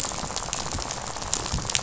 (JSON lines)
{"label": "biophony, rattle", "recorder": "SoundTrap 500"}